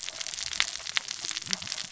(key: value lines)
label: biophony, cascading saw
recorder: SoundTrap 600 or HydroMoth